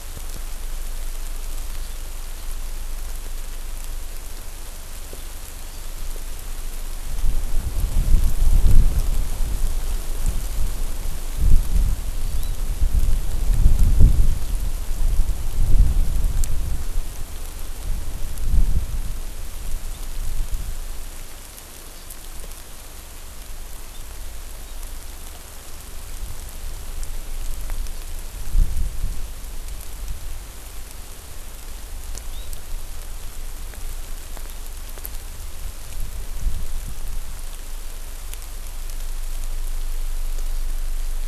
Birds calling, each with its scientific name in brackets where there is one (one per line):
Hawaii Amakihi (Chlorodrepanis virens)